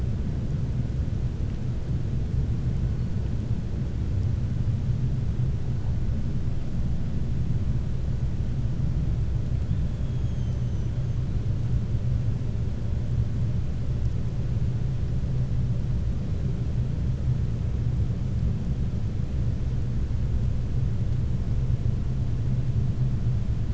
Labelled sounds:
10.0	10.5	killer whale, 2.6 to 4.0 kHz

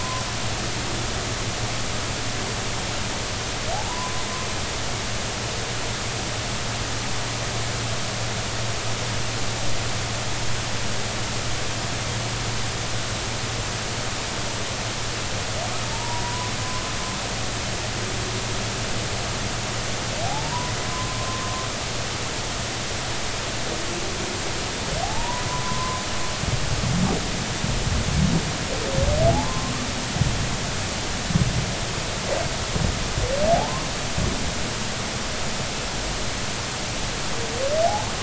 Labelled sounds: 3.7	4.2	humpback whale, 0.80 to 1.1 kHz
15.9	16.5	humpback whale, 0.86 to 1.1 kHz
20.2	21.4	humpback whale, 0.80 to 1.1 kHz
25.0	26.0	humpback whale, 0.80 to 1.1 kHz
29.3	29.7	humpback whale, 0.80 to 1.1 kHz
33.5	33.9	humpback whale, 0.80 to 1.2 kHz

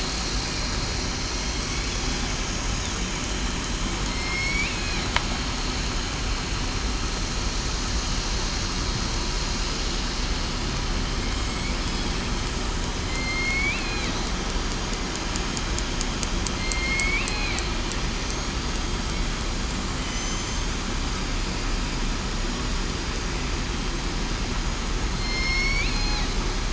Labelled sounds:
4.1	4.7	killer whale, southern resident, 2.1 to 5.5 kHz
13.0	13.7	killer whale, southern resident, 4.1 to 4.6 kHz
16.7	17.3	killer whale, southern resident, 2.1 to 4.5 kHz
18.1	18.5	killer whale, southern resident, 6.0 to 6.8 kHz
20.0	20.5	killer whale, southern resident, 6.0 to 6.2 kHz
25.1	25.8	killer whale, southern resident, 4.1 to 5.7 kHz

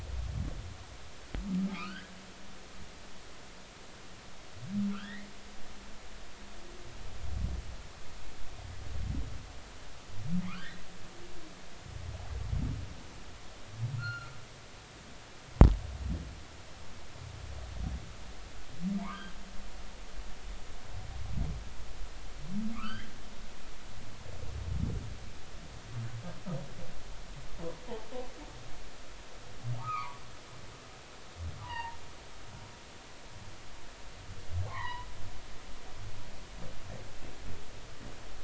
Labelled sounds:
1.7	2.1	humpback whale, 1.1 to 1.8 kHz
2.7	3.1	humpback whale, 2.0 to 3.3 kHz
4.9	5.3	humpback whale, 1.2 to 2.2 kHz
10.5	10.8	humpback whale, 1.0 to 2.0 kHz
14.0	14.3	humpback whale, 1.2 to 4.4 kHz
19.0	19.3	humpback whale, 0.83 to 1.3 kHz
22.7	23.1	humpback whale, 1.0 to 3.3 kHz
29.8	30.2	humpback whale, 0.90 to 2.6 kHz
31.6	32.0	humpback whale, 0.80 to 3.0 kHz
34.7	35.1	humpback whale, 0.80 to 3.2 kHz

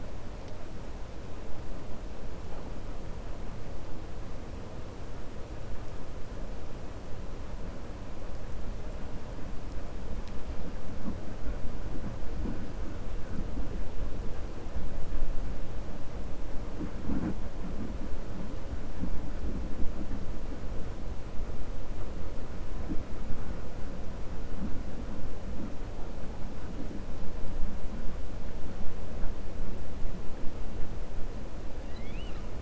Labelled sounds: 31.8	32.5	killer whale, 1.2 to 4.9 kHz

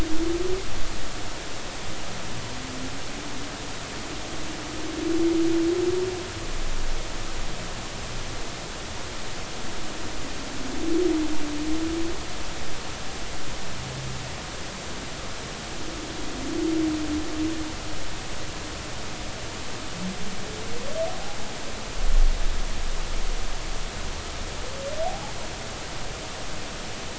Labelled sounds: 21.1	21.4	humpback whale, 0.80 to 0.86 kHz
25.0	25.3	humpback whale, 0.80 to 0.93 kHz

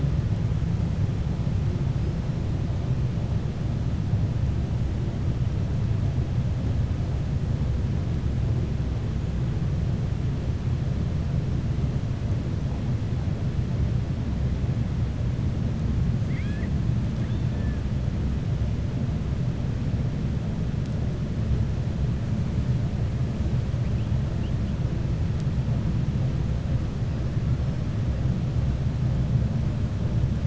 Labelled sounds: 16.2	16.7	killer whale, 1.6 to 4.3 kHz

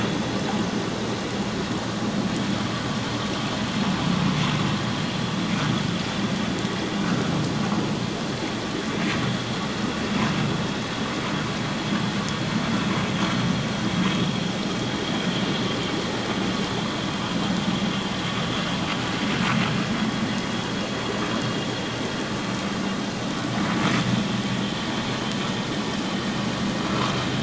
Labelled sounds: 7.0	7.3	vessel noise, 1.2 to 1.6 kHz

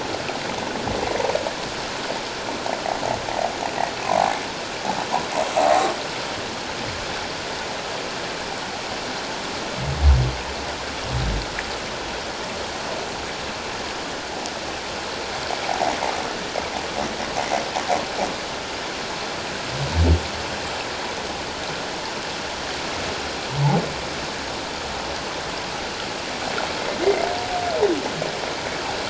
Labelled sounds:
1.1	1.3	humpback whale, 0.88 to 1.0 kHz
4.1	4.3	humpback whale, 0.78 to 0.94 kHz
15.7	15.9	humpback whale, 0.78 to 1.0 kHz

